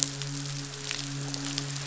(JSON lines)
{"label": "biophony, midshipman", "recorder": "SoundTrap 500"}